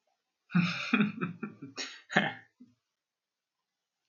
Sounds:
Laughter